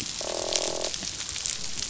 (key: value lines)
label: biophony, croak
recorder: SoundTrap 500